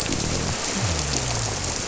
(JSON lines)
{"label": "biophony", "recorder": "SoundTrap 300"}